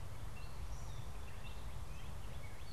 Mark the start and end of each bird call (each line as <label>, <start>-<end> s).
Gray Catbird (Dumetella carolinensis), 0.0-2.7 s
Northern Cardinal (Cardinalis cardinalis), 1.2-2.7 s